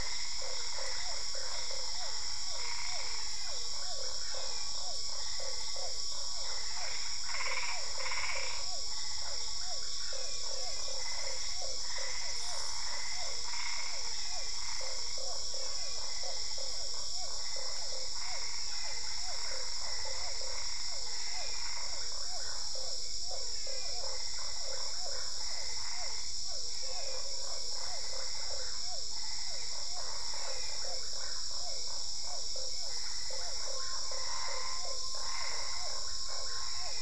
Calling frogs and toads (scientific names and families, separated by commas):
Boana albopunctata (Hylidae), Dendropsophus cruzi (Hylidae), Physalaemus cuvieri (Leptodactylidae), Boana lundii (Hylidae), Physalaemus marmoratus (Leptodactylidae)